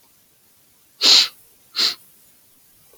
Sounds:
Sniff